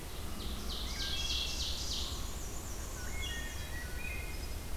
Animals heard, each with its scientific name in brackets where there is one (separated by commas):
Black-and-white Warbler (Mniotilta varia), Ovenbird (Seiurus aurocapilla), Wood Thrush (Hylocichla mustelina)